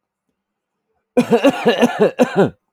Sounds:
Cough